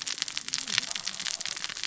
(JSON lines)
{"label": "biophony, cascading saw", "recorder": "SoundTrap 600 or HydroMoth"}